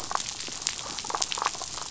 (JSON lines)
{"label": "biophony, damselfish", "recorder": "SoundTrap 500"}